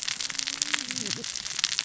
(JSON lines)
{"label": "biophony, cascading saw", "recorder": "SoundTrap 600 or HydroMoth"}